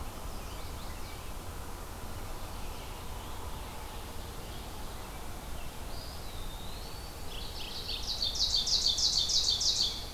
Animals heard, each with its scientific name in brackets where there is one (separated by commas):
Chestnut-sided Warbler (Setophaga pensylvanica), Ovenbird (Seiurus aurocapilla), Mourning Warbler (Geothlypis philadelphia), Eastern Wood-Pewee (Contopus virens)